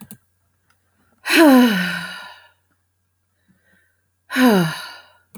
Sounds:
Sigh